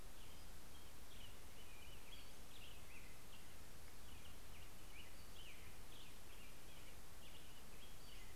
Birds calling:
Pacific-slope Flycatcher (Empidonax difficilis)
Black-headed Grosbeak (Pheucticus melanocephalus)

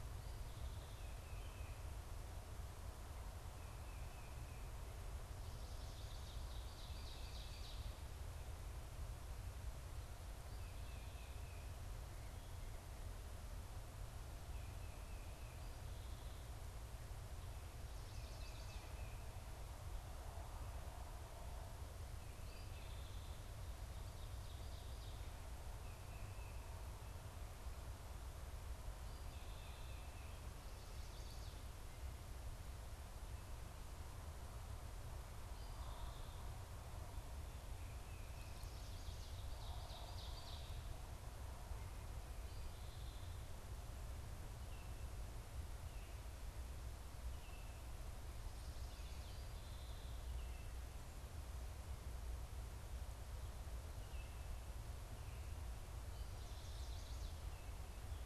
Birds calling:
Ovenbird (Seiurus aurocapilla)
Chestnut-sided Warbler (Setophaga pensylvanica)
Tufted Titmouse (Baeolophus bicolor)
Song Sparrow (Melospiza melodia)

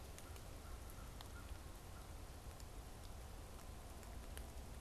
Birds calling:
American Crow (Corvus brachyrhynchos)

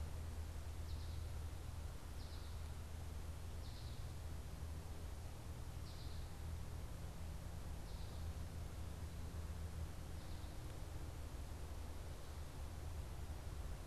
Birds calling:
American Goldfinch (Spinus tristis)

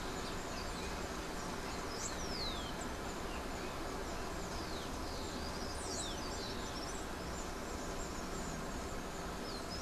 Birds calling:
Rufous-collared Sparrow (Zonotrichia capensis)

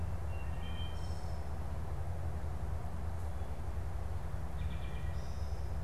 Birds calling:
Wood Thrush (Hylocichla mustelina)

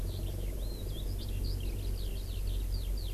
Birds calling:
Eurasian Skylark (Alauda arvensis)

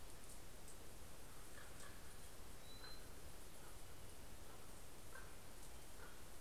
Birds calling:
Common Raven (Corvus corax)

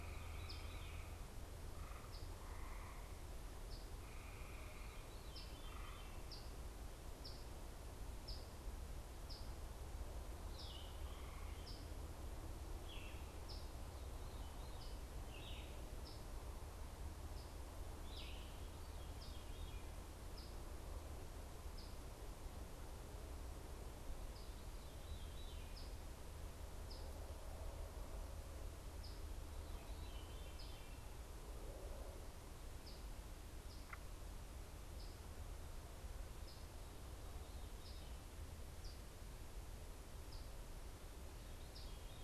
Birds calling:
Veery (Catharus fuscescens)
Eastern Phoebe (Sayornis phoebe)
Yellow-throated Vireo (Vireo flavifrons)

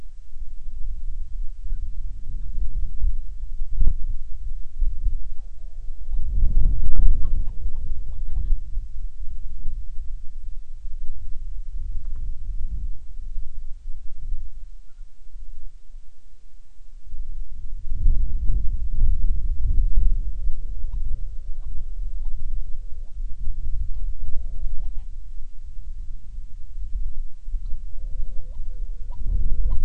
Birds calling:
Hawaiian Petrel (Pterodroma sandwichensis)

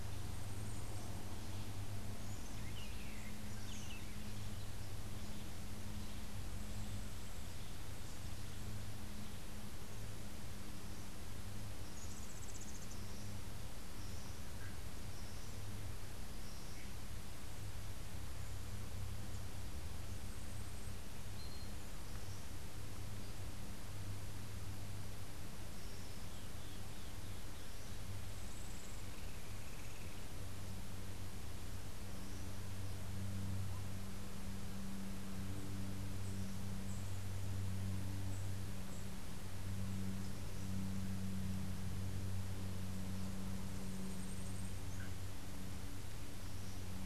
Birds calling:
Yellow-crowned Euphonia (Euphonia luteicapilla)
Buff-throated Saltator (Saltator maximus)

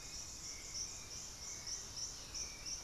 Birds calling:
Hauxwell's Thrush (Turdus hauxwelli)
Russet-backed Oropendola (Psarocolius angustifrons)

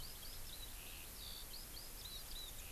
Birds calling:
Eurasian Skylark (Alauda arvensis)
Hawaii Amakihi (Chlorodrepanis virens)
Warbling White-eye (Zosterops japonicus)

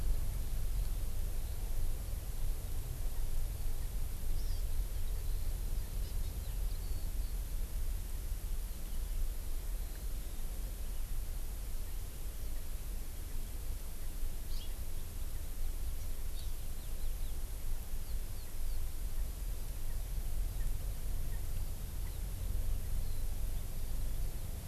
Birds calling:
Hawaii Amakihi (Chlorodrepanis virens)
House Finch (Haemorhous mexicanus)

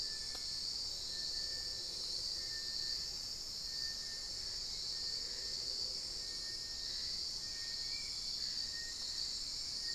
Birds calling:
Hauxwell's Thrush (Turdus hauxwelli)
Spot-winged Antshrike (Pygiptila stellaris)
Little Tinamou (Crypturellus soui)

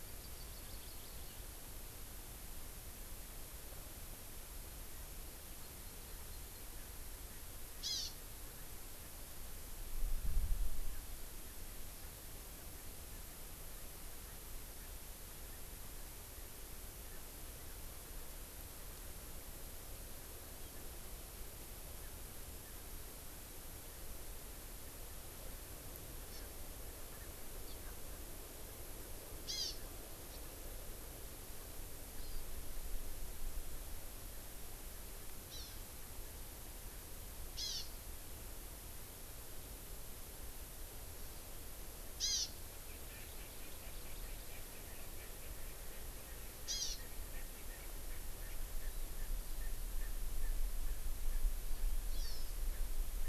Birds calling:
Hawaii Amakihi (Chlorodrepanis virens)

